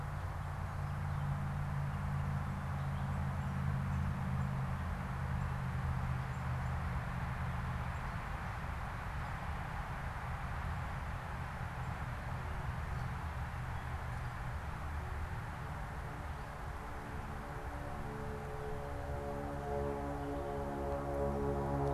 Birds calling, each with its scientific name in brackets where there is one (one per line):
Gray Catbird (Dumetella carolinensis)